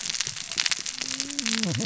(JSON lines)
{"label": "biophony, cascading saw", "recorder": "SoundTrap 600 or HydroMoth"}